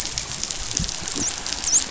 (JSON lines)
{"label": "biophony, dolphin", "recorder": "SoundTrap 500"}